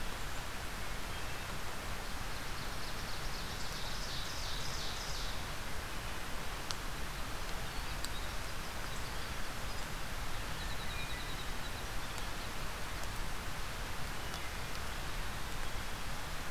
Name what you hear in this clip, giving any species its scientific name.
Seiurus aurocapilla, Troglodytes hiemalis